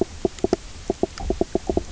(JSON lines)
{"label": "biophony, knock croak", "recorder": "SoundTrap 300"}